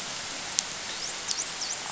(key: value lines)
label: biophony, dolphin
recorder: SoundTrap 500